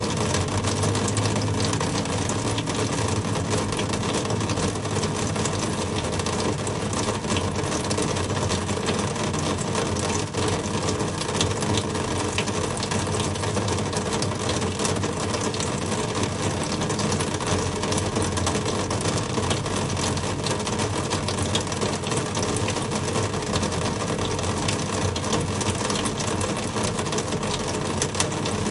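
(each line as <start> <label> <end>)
0.1 Rain dripping on a sheet of metal. 28.7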